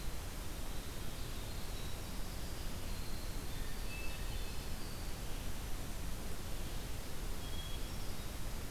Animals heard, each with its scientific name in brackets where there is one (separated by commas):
Hermit Thrush (Catharus guttatus), Winter Wren (Troglodytes hiemalis)